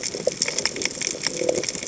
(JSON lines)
{"label": "biophony", "recorder": "HydroMoth"}